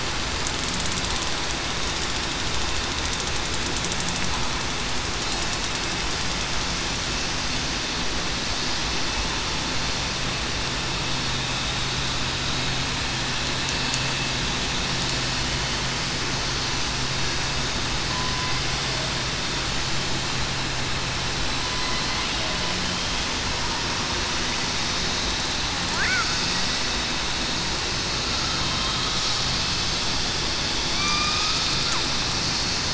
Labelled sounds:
22.8	23.2	killer whale, southern resident, 3.1 to 3.3 kHz
30.9	31.5	killer whale, southern resident, 2.2 to 2.6 kHz

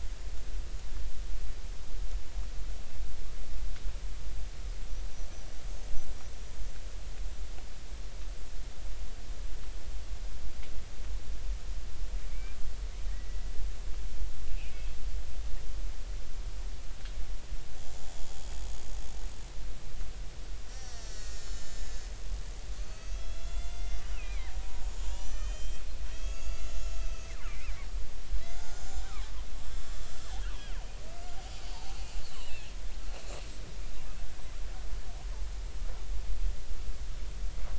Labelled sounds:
12.3	12.6	killer whale, Bigg's (transient), 2.1 to 2.4 kHz
13.1	13.4	killer whale, Bigg's (transient), 1.8 to 2.0 kHz
20.7	22.1	killer whale, Bigg's (transient), 1.3 to 7.6 kHz
22.8	27.7	killer whale, Bigg's (transient), 0.86 to 7.7 kHz
28.4	29.1	killer whale, Bigg's (transient), 1.4 to 7.3 kHz
31.7	32.7	killer whale, Bigg's (transient), 2.5 to 7.7 kHz

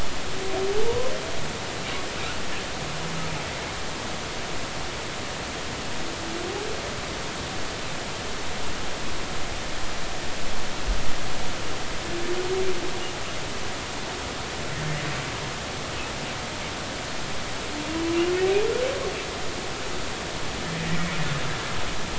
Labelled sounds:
0.9	1.1	humpback whale, 0.86 to 1.1 kHz
20.8	21.1	humpback whale, 1.8 to 2.0 kHz

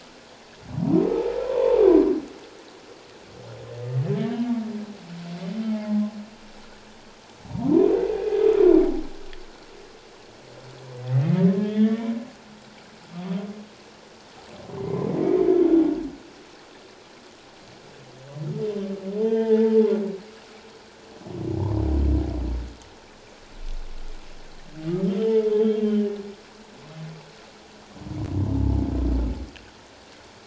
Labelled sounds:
1.5	1.8	humpback whale, 0.84 to 1.2 kHz
4.1	4.4	humpback whale, 1.6 to 1.9 kHz
5.7	6.0	humpback whale, 0.78 to 0.88 kHz
7.5	8.4	humpback whale, 0.88 to 2.6 kHz
11.5	12.1	humpback whale, 1.7 to 3.6 kHz
19.2	19.8	humpback whale, 0.81 to 3.2 kHz
25.1	26.0	humpback whale, 3.0 to 3.6 kHz

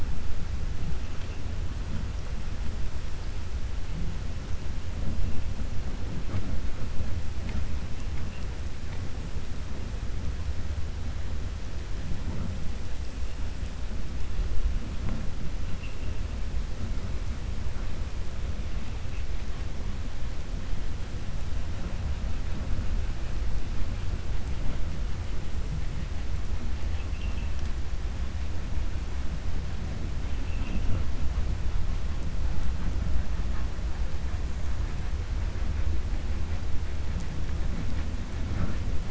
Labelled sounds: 30.2	31.0	vessel noise, 2.2 to 3.3 kHz

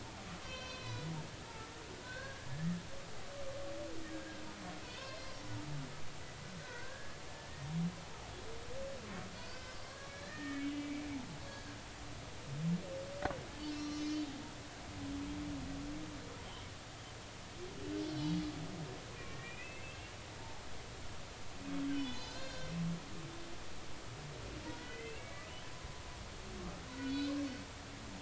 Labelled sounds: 0.4	1.1	humpback whale, 0.93 to 5.7 kHz
2.0	2.7	humpback whale, 1.4 to 1.8 kHz
4.1	5.3	humpback whale, 1.5 to 4.8 kHz
6.6	7.7	humpback whale, 1.4 to 1.9 kHz
9.3	9.8	humpback whale, 1.4 to 5.3 kHz
10.3	11.7	humpback whale, 1.2 to 4.6 kHz
13.6	14.2	humpback whale, 1.2 to 6.4 kHz
18.0	18.3	humpback whale, 3.0 to 4.4 kHz
19.1	20.0	humpback whale, 1.8 to 2.7 kHz
21.9	22.7	humpback whale, 1.5 to 6.6 kHz
24.8	25.5	humpback whale, 1.9 to 3.2 kHz
27.0	27.3	humpback whale, 3.9 to 4.2 kHz

